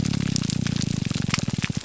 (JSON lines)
{"label": "biophony, grouper groan", "recorder": "SoundTrap 300"}